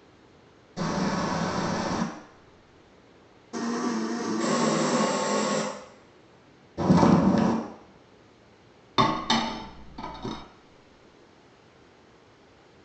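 At 0.76 seconds, rain on a surface can be heard. Then, at 3.53 seconds, you can hear a blender. Over it, at 4.4 seconds, a hair dryer is heard. Next, at 6.77 seconds, someone walks. Finally, at 8.96 seconds, there is the sound of dishes.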